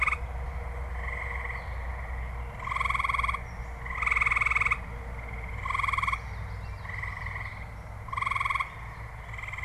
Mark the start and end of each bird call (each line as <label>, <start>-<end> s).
Common Yellowthroat (Geothlypis trichas), 5.5-7.7 s